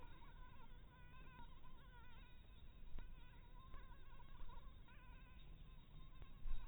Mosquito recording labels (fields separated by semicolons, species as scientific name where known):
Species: Anopheles maculatus; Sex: female; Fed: blood-fed; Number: one; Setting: cup